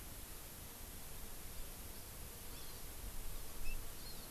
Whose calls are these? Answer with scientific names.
Chlorodrepanis virens